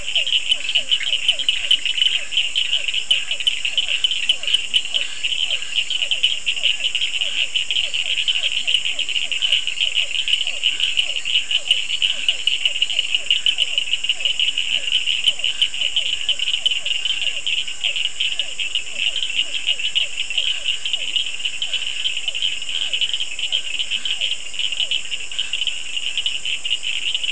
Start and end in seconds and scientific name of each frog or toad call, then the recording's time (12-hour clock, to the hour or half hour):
0.0	25.3	Physalaemus cuvieri
0.0	27.3	Sphaenorhynchus surdus
0.5	5.0	Leptodactylus latrans
0.9	2.3	Boana bischoffi
11.5	12.7	Leptodactylus latrans
23.8	24.2	Leptodactylus latrans
~8pm